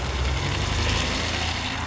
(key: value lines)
label: anthrophony, boat engine
recorder: SoundTrap 500